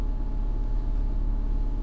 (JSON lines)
{"label": "anthrophony, boat engine", "recorder": "SoundTrap 300"}